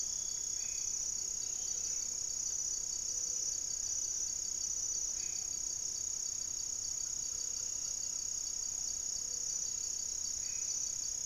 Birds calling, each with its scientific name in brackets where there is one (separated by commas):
Black-faced Antthrush (Formicarius analis), Gray-fronted Dove (Leptotila rufaxilla), unidentified bird